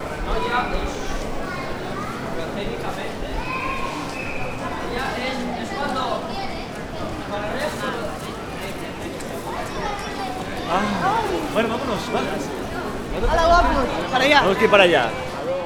Are there people of different ages around?
yes